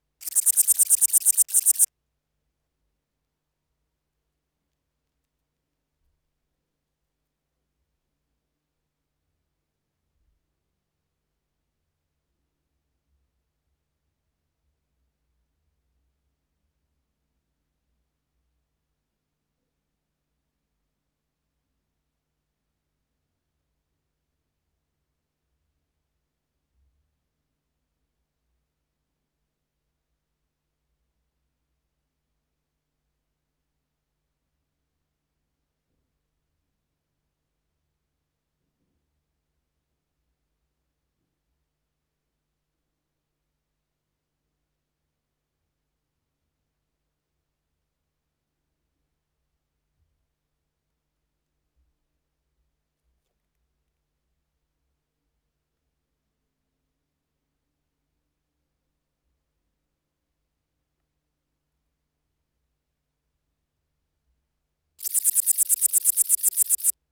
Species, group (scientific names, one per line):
Pholidoptera frivaldszkyi
Orthoptera